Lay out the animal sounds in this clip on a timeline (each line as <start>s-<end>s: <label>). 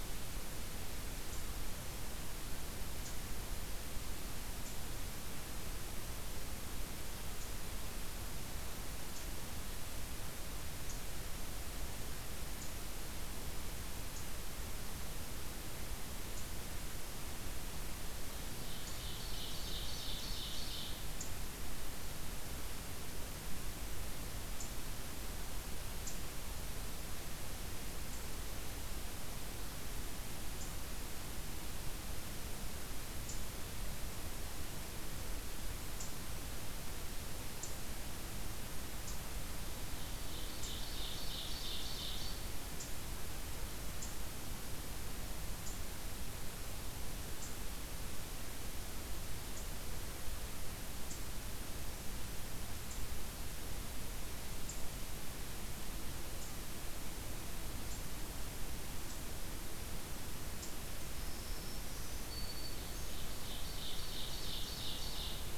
1.0s-26.2s: Eastern Chipmunk (Tamias striatus)
18.4s-21.1s: Ovenbird (Seiurus aurocapilla)
28.1s-60.7s: Eastern Chipmunk (Tamias striatus)
39.9s-42.4s: Ovenbird (Seiurus aurocapilla)
61.0s-63.2s: Black-throated Green Warbler (Setophaga virens)
62.7s-65.6s: Ovenbird (Seiurus aurocapilla)